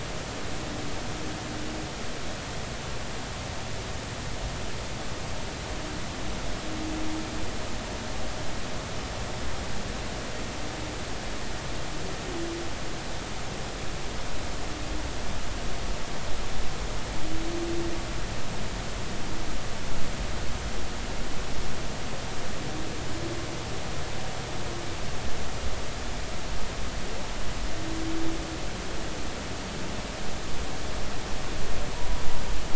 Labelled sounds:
31.9	32.2	humpback whale, 0.83 to 1.0 kHz

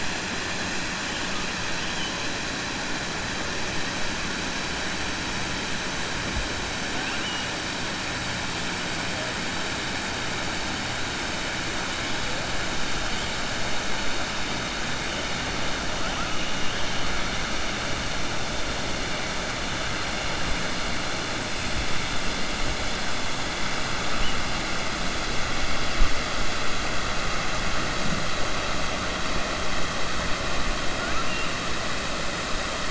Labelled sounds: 6.9	7.5	killer whale, 1.6 to 3.1 kHz

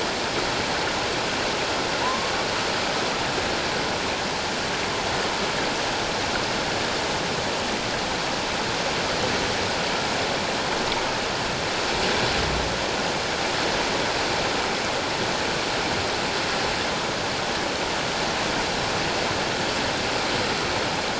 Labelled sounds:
2.0	2.3	humpback whale, 0.91 to 1.2 kHz

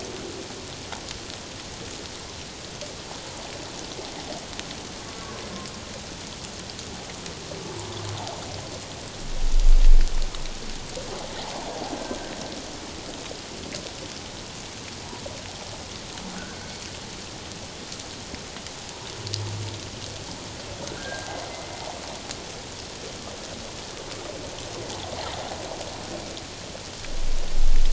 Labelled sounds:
16.6	16.8	humpback whale, 4.3 to 4.5 kHz
20.9	21.4	humpback whale, 1.4 to 1.8 kHz

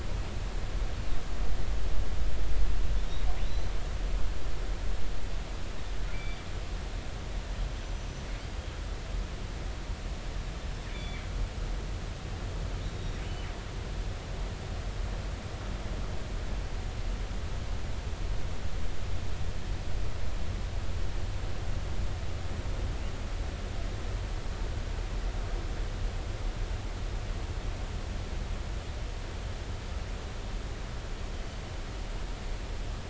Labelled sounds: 3.4	3.7	killer whale, northern resident, G clan, GG subclan, call N28, 3.7 to 4.2 kHz
6.1	6.4	killer whale, northern resident, G clan, GI subclan, call N23i, 2.0 to 4.8 kHz
7.8	8.1	killer whale, northern resident, G clan, GI subclan, call N23i, 5.9 to 6.1 kHz
10.9	11.2	killer whale, northern resident, G clan, GI subclan, call N23i, 1.9 to 3.6 kHz
12.9	13.5	killer whale, northern resident, G clan, GI subclan, call N23i, 2.8 to 3.8 kHz

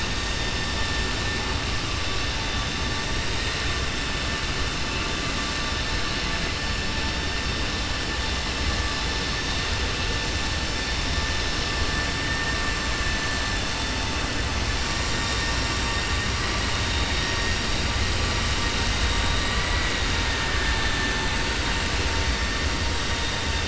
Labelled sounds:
20.5	21.3	vessel noise, 0.84 to 2.2 kHz

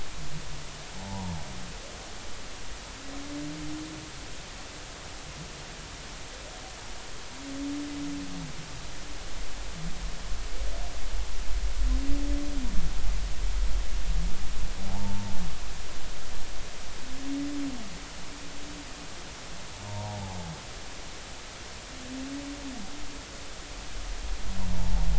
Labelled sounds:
1.0	1.3	humpback whale, 0.80 to 1.1 kHz
14.9	15.4	humpback whale, 0.80 to 0.96 kHz
19.8	20.4	humpback whale, 0.80 to 1.1 kHz
24.7	25.1	humpback whale, 0.80 to 0.99 kHz

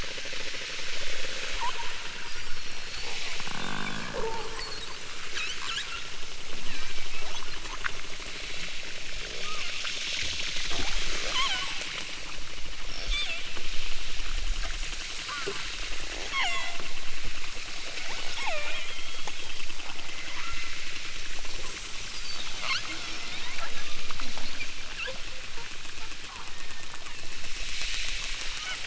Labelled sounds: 1.5	2.6	killer whale, southern Alaska resident, 0.50 to 3.0 kHz
5.3	6.1	killer whale, southern Alaska resident, 0.78 to 8.0 kHz
6.6	7.2	killer whale, southern Alaska resident, 1.1 to 6.7 kHz
9.2	9.6	killer whale, southern Alaska resident, 0.26 to 1.6 kHz
11.2	11.8	killer whale, southern Alaska resident, 0.46 to 8.0 kHz
12.9	13.6	killer whale, southern Alaska resident, 0.28 to 8.0 kHz
15.2	15.8	killer whale, southern Alaska resident, 0.60 to 4.1 kHz
16.3	16.8	killer whale, southern Alaska resident, 0.23 to 8.0 kHz
18.0	19.6	killer whale, southern Alaska resident, 0.23 to 8.0 kHz
20.3	20.9	killer whale, southern Alaska resident, 0.50 to 4.6 kHz
22.6	24.1	killer whale, southern Alaska resident, 0.46 to 6.6 kHz
24.9	25.3	killer whale, southern Alaska resident, 0.64 to 5.5 kHz
26.4	27.6	killer whale, southern Alaska resident, 1.2 to 3.5 kHz

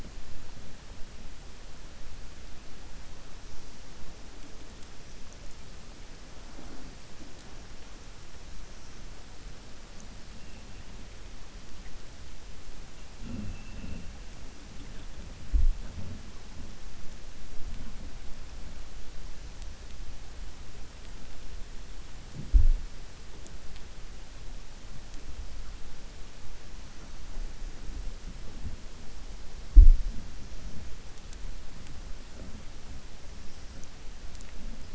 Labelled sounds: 13.4	14.0	killer whale, 2.6 to 3.7 kHz

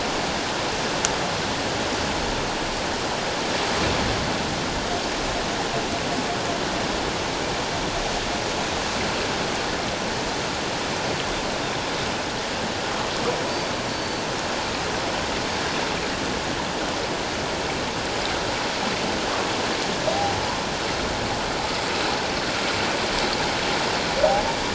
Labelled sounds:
13.9	14.2	Pacific white-sided dolphin, 4.4 to 4.6 kHz

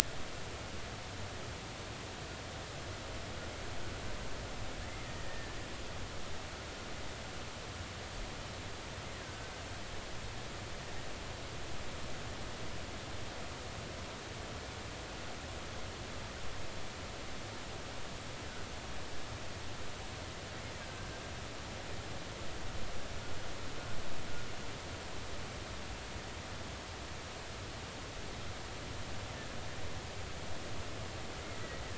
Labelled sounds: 5.0	5.5	killer whale, 1.7 to 2.0 kHz
9.2	9.5	killer whale, 1.5 to 1.7 kHz
31.5	31.8	killer whale, 1.9 to 2.0 kHz

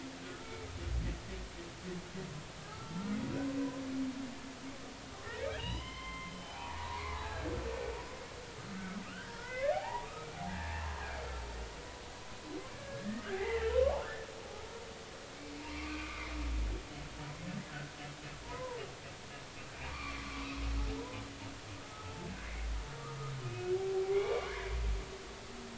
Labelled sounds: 0.2	0.6	humpback whale, 1.2 to 1.4 kHz
2.6	3.6	humpback whale, 0.93 to 1.5 kHz
5.5	7.5	humpback whale, 0.80 to 5.1 kHz
9.1	10.9	humpback whale, 0.80 to 3.2 kHz
12.7	14.0	humpback whale, 0.80 to 2.1 kHz
15.7	16.3	humpback whale, 1.1 to 4.3 kHz
17.7	18.8	humpback whale, 0.86 to 1.6 kHz
19.7	21.2	humpback whale, 0.86 to 4.7 kHz
21.9	22.3	humpback whale, 0.83 to 1.4 kHz
23.4	24.7	humpback whale, 1.1 to 2.6 kHz

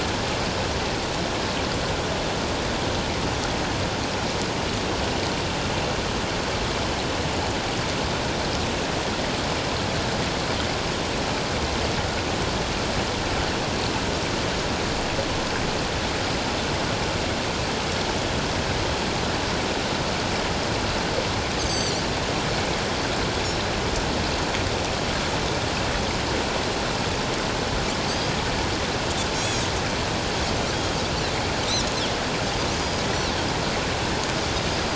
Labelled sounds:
21.6	22.0	Pacific white-sided dolphin, 4.3 to 7.9 kHz
29.3	29.6	Pacific white-sided dolphin, 6.3 to 6.9 kHz
32.7	33.0	Pacific white-sided dolphin, 4.8 to 5.2 kHz
34.7	34.9	Pacific white-sided dolphin, 4.8 to 5.0 kHz

